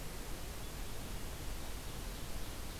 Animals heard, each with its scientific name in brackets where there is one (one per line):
Ovenbird (Seiurus aurocapilla)